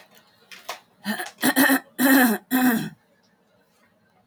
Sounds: Throat clearing